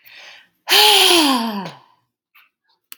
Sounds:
Sigh